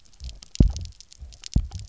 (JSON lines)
{"label": "biophony, double pulse", "recorder": "SoundTrap 300"}